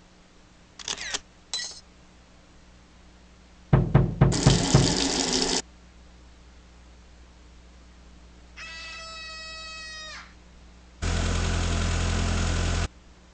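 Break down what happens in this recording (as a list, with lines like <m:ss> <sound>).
0:01 the sound of a camera is heard
0:02 the sound of glass can be heard
0:04 there is knocking
0:04 the sound of a water tap is audible
0:09 someone screams
0:11 the sound of a car is heard
a quiet steady noise remains about 25 decibels below the sounds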